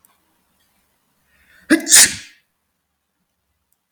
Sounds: Sneeze